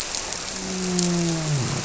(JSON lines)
{"label": "biophony, grouper", "recorder": "SoundTrap 300"}